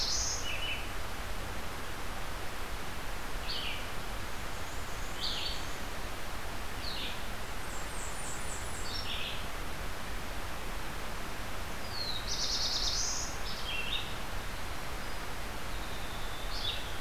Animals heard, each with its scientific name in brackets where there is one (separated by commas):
Red-eyed Vireo (Vireo olivaceus), Winter Wren (Troglodytes hiemalis), Blackburnian Warbler (Setophaga fusca), Black-and-white Warbler (Mniotilta varia), Black-throated Blue Warbler (Setophaga caerulescens)